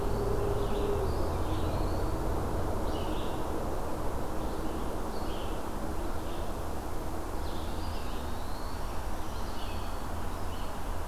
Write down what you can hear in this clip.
Red-eyed Vireo, Eastern Wood-Pewee, Black-throated Green Warbler